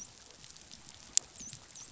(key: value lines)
label: biophony, dolphin
recorder: SoundTrap 500